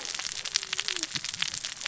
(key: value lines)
label: biophony, cascading saw
recorder: SoundTrap 600 or HydroMoth